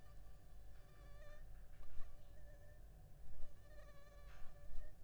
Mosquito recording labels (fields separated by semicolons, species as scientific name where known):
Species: Anopheles funestus s.s.; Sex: female; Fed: unfed; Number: one; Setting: cup